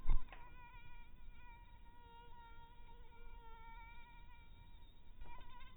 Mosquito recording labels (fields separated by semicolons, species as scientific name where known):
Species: mosquito; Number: one; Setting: cup